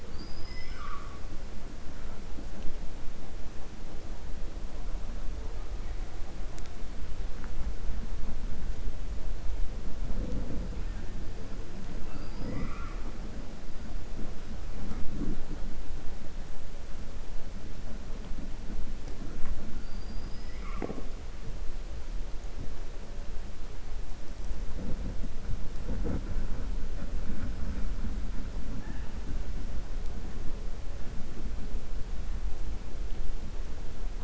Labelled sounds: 0.0	1.2	killer whale, 1.1 to 5.3 kHz
19.7	20.6	killer whale, 4.5 to 5.2 kHz

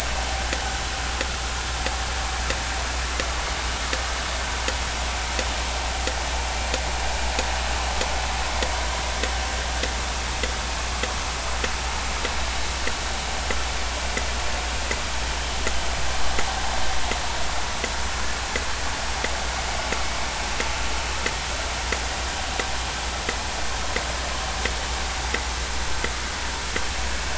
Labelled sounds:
1.2	1.5	vessel noise, 1.2 to 1.5 kHz

